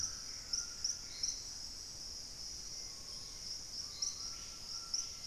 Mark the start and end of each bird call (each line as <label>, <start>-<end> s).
Gray Antbird (Cercomacra cinerascens), 0.0-1.5 s
Hauxwell's Thrush (Turdus hauxwelli), 0.0-5.3 s
White-throated Toucan (Ramphastos tucanus), 0.0-5.3 s
Dusky-capped Greenlet (Pachysylvia hypoxantha), 2.8-5.3 s
Screaming Piha (Lipaugus vociferans), 2.8-5.3 s